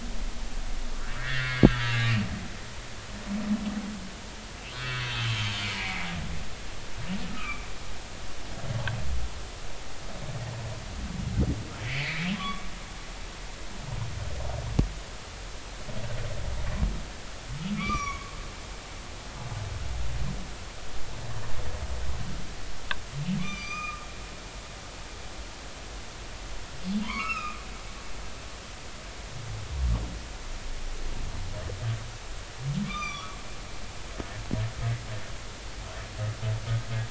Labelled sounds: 1.2	2.0	humpback whale, 1.2 to 2.3 kHz
4.7	6.1	humpback whale, 1.2 to 3.5 kHz
7.3	7.6	humpback whale, 1.1 to 2.6 kHz
11.8	12.6	humpback whale, 0.99 to 3.5 kHz
17.7	18.3	humpback whale, 1.0 to 7.0 kHz
23.4	24.1	humpback whale, 0.96 to 6.2 kHz
27.0	27.6	humpback whale, 0.93 to 5.4 kHz
32.8	33.4	humpback whale, 1.1 to 6.1 kHz

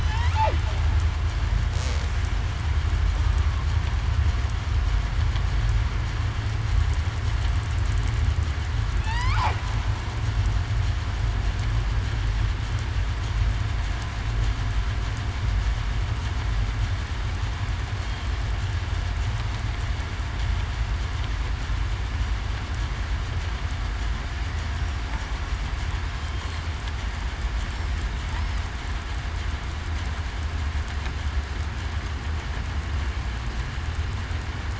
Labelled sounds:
9.0	9.4	killer whale, southern resident, 0.82 to 1.5 kHz

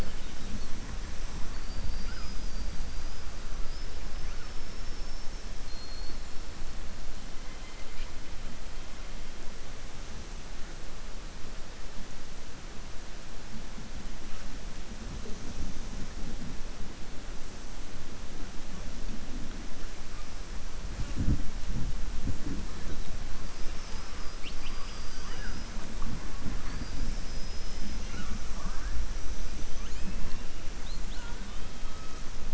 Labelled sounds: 4.6	5.4	killer whale, southern resident, 5.1 to 6.2 kHz

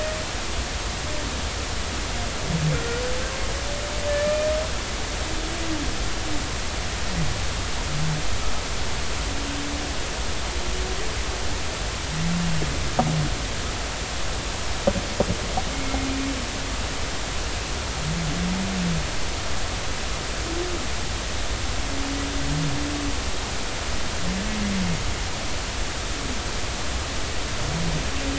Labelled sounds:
2.7	3.0	humpback whale, 1.3 to 1.5 kHz
4.1	4.5	humpback whale, 2.3 to 2.5 kHz
15.7	16.1	humpback whale, 2.1 to 2.3 kHz

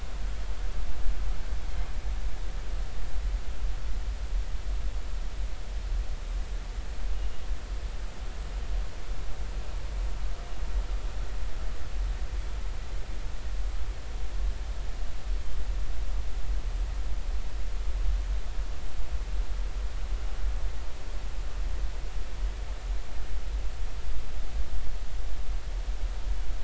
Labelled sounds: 7.1	7.4	killer whale, 2.8 to 3.0 kHz

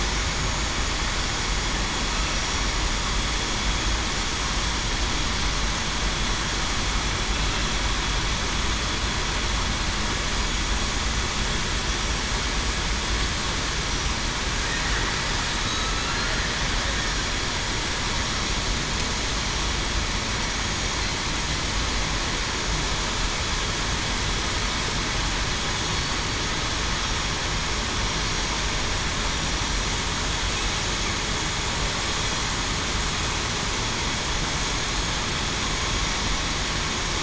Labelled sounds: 15.6	16.0	killer whale, southern resident, 1.26 to 1.33 kHz
25.9	26.2	killer whale, southern resident, 4.4 to 4.6 kHz

